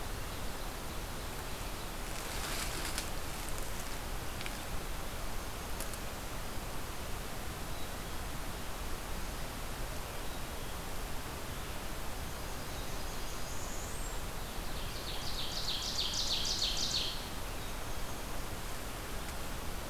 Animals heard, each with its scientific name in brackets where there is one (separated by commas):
Ovenbird (Seiurus aurocapilla), Blackburnian Warbler (Setophaga fusca), Black-capped Chickadee (Poecile atricapillus)